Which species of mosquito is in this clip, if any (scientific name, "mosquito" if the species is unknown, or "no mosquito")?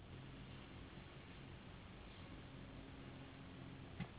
Anopheles gambiae s.s.